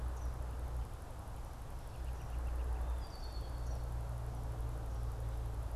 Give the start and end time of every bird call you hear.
[0.00, 0.50] Eastern Kingbird (Tyrannus tyrannus)
[1.50, 2.80] unidentified bird
[2.80, 4.00] Red-winged Blackbird (Agelaius phoeniceus)

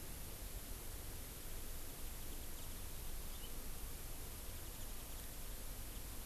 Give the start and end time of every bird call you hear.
[1.71, 2.81] Warbling White-eye (Zosterops japonicus)
[3.31, 3.50] Hawaii Amakihi (Chlorodrepanis virens)
[4.41, 6.21] Warbling White-eye (Zosterops japonicus)

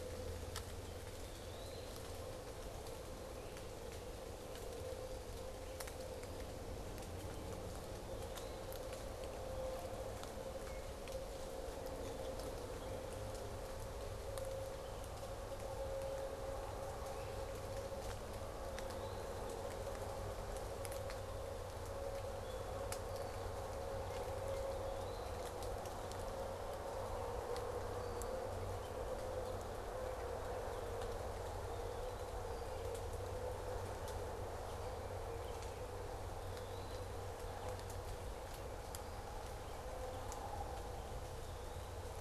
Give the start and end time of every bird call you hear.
[0.85, 1.95] Eastern Wood-Pewee (Contopus virens)
[5.95, 13.25] unidentified bird
[16.85, 17.45] Great Crested Flycatcher (Myiarchus crinitus)
[18.45, 19.55] Eastern Wood-Pewee (Contopus virens)
[22.25, 23.75] unidentified bird
[24.55, 25.55] Eastern Wood-Pewee (Contopus virens)
[27.65, 28.55] unidentified bird
[36.25, 37.15] Eastern Wood-Pewee (Contopus virens)

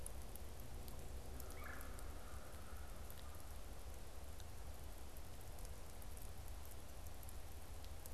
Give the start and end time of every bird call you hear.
[1.11, 3.61] American Crow (Corvus brachyrhynchos)
[1.41, 2.01] Red-bellied Woodpecker (Melanerpes carolinus)

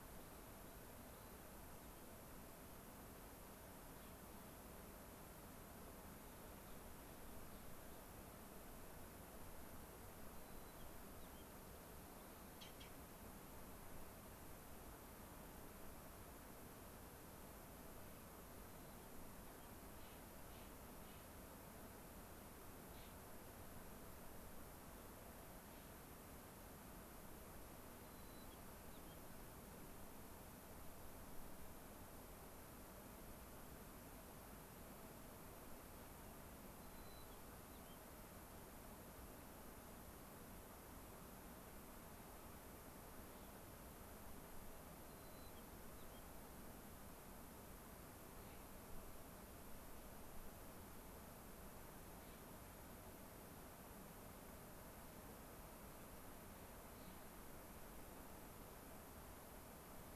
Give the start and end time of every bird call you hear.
[0.00, 2.90] unidentified bird
[6.00, 8.40] unidentified bird
[10.20, 11.60] White-crowned Sparrow (Zonotrichia leucophrys)
[19.90, 21.30] Clark's Nutcracker (Nucifraga columbiana)
[22.80, 23.20] Clark's Nutcracker (Nucifraga columbiana)
[27.90, 29.40] White-crowned Sparrow (Zonotrichia leucophrys)
[36.70, 38.10] White-crowned Sparrow (Zonotrichia leucophrys)
[44.90, 46.20] White-crowned Sparrow (Zonotrichia leucophrys)
[48.20, 48.80] Clark's Nutcracker (Nucifraga columbiana)
[52.10, 52.50] Clark's Nutcracker (Nucifraga columbiana)
[56.80, 57.40] Clark's Nutcracker (Nucifraga columbiana)

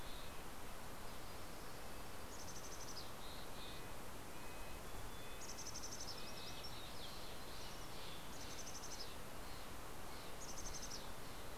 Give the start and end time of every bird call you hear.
[0.00, 7.80] Red-breasted Nuthatch (Sitta canadensis)
[1.70, 11.57] Mountain Chickadee (Poecile gambeli)
[6.20, 11.30] Steller's Jay (Cyanocitta stelleri)

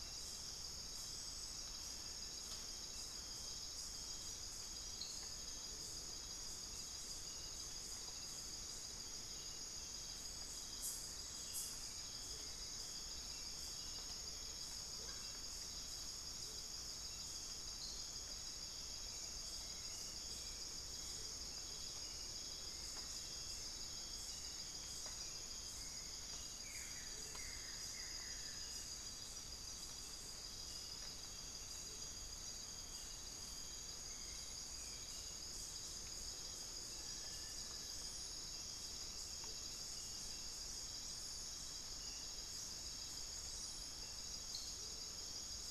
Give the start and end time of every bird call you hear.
[12.11, 28.01] Hauxwell's Thrush (Turdus hauxwelli)
[12.11, 45.61] Amazonian Motmot (Momotus momota)
[14.91, 15.41] unidentified bird
[26.61, 28.91] Buff-throated Woodcreeper (Xiphorhynchus guttatus)
[33.81, 36.41] Hauxwell's Thrush (Turdus hauxwelli)

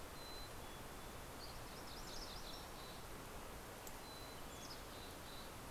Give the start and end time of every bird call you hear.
[0.00, 1.00] Mountain Chickadee (Poecile gambeli)
[1.00, 1.80] Dusky Flycatcher (Empidonax oberholseri)
[1.40, 3.00] MacGillivray's Warbler (Geothlypis tolmiei)
[1.90, 5.70] Mountain Chickadee (Poecile gambeli)

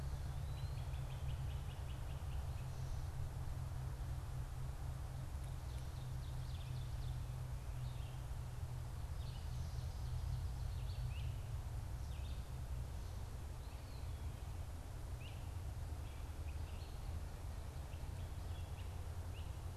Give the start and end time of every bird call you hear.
[0.30, 2.80] Great Crested Flycatcher (Myiarchus crinitus)
[5.40, 7.30] Ovenbird (Seiurus aurocapilla)
[9.00, 9.60] Red-eyed Vireo (Vireo olivaceus)
[10.90, 11.30] Great Crested Flycatcher (Myiarchus crinitus)
[15.10, 15.50] Great Crested Flycatcher (Myiarchus crinitus)
[16.20, 19.50] Great Crested Flycatcher (Myiarchus crinitus)

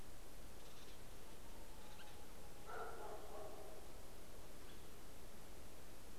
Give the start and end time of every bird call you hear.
[0.00, 6.10] White-headed Woodpecker (Dryobates albolarvatus)

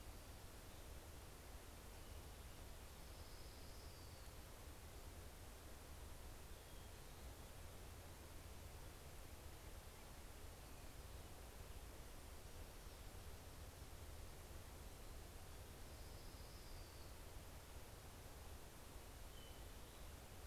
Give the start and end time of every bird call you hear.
[2.18, 4.78] Orange-crowned Warbler (Leiothlypis celata)
[5.58, 8.18] Hermit Thrush (Catharus guttatus)
[15.08, 18.18] Orange-crowned Warbler (Leiothlypis celata)
[18.68, 20.38] Hermit Thrush (Catharus guttatus)

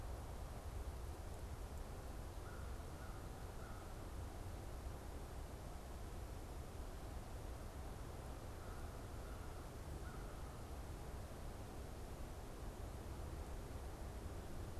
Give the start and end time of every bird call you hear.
[2.23, 4.23] American Crow (Corvus brachyrhynchos)
[8.43, 10.53] American Crow (Corvus brachyrhynchos)

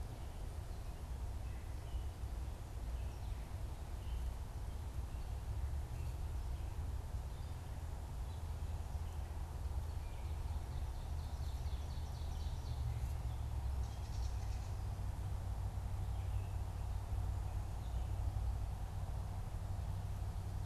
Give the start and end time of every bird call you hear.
[10.30, 13.20] Ovenbird (Seiurus aurocapilla)
[13.60, 15.00] Gray Catbird (Dumetella carolinensis)

